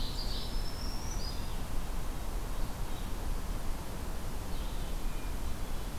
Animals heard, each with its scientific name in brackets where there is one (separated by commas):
Black-throated Green Warbler (Setophaga virens), Ovenbird (Seiurus aurocapilla), Red-eyed Vireo (Vireo olivaceus), Red-breasted Nuthatch (Sitta canadensis)